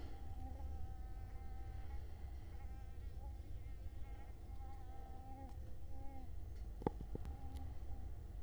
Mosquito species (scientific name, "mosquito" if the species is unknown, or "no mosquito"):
Culex quinquefasciatus